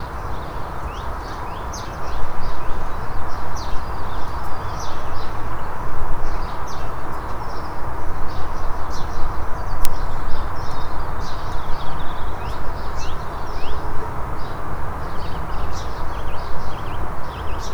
is there only wildlife heard?
yes